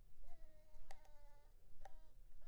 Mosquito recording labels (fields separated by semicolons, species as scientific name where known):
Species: Anopheles coustani; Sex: female; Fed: blood-fed; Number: one; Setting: cup